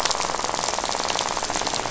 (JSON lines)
{"label": "biophony, rattle", "recorder": "SoundTrap 500"}